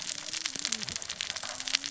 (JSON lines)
{"label": "biophony, cascading saw", "recorder": "SoundTrap 600 or HydroMoth"}